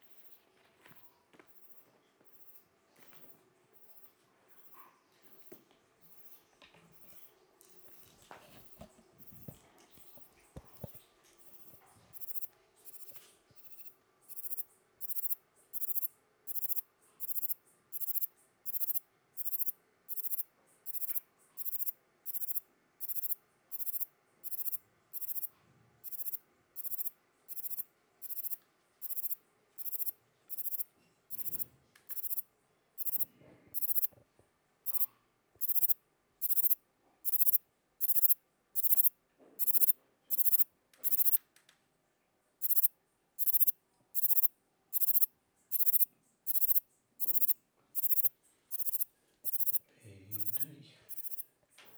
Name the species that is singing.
Platycleis intermedia